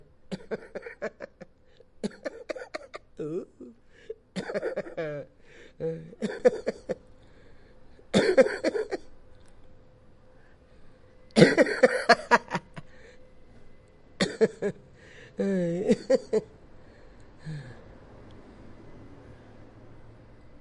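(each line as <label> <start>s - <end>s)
Quiet coughing followed by evil-sounding laughter. 0.2s - 7.0s
Coughing followed by evil-sounding laughter. 8.1s - 9.0s
Coughing followed by evil-sounding laughter. 11.3s - 12.9s
Quiet coughing followed by evil-sounding laughter. 14.1s - 17.7s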